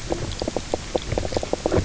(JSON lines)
{"label": "biophony, knock croak", "recorder": "SoundTrap 300"}